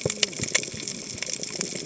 {"label": "biophony, cascading saw", "recorder": "HydroMoth"}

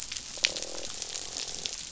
{"label": "biophony, croak", "recorder": "SoundTrap 500"}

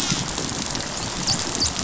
{"label": "biophony, dolphin", "recorder": "SoundTrap 500"}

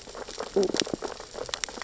{"label": "biophony, sea urchins (Echinidae)", "recorder": "SoundTrap 600 or HydroMoth"}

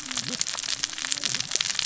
{"label": "biophony, cascading saw", "recorder": "SoundTrap 600 or HydroMoth"}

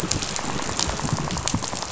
{"label": "biophony, rattle", "recorder": "SoundTrap 500"}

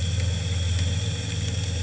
{"label": "anthrophony, boat engine", "recorder": "HydroMoth"}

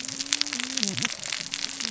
{"label": "biophony, cascading saw", "recorder": "SoundTrap 600 or HydroMoth"}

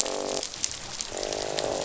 {"label": "biophony, croak", "recorder": "SoundTrap 500"}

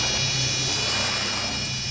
{"label": "anthrophony, boat engine", "recorder": "SoundTrap 500"}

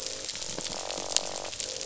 {"label": "biophony, croak", "recorder": "SoundTrap 500"}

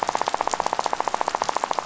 {"label": "biophony, rattle", "recorder": "SoundTrap 500"}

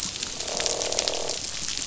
{"label": "biophony, croak", "recorder": "SoundTrap 500"}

